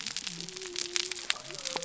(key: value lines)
label: biophony
recorder: SoundTrap 300